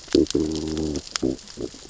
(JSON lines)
{"label": "biophony, growl", "recorder": "SoundTrap 600 or HydroMoth"}